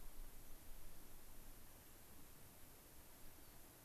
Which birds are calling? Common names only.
Rock Wren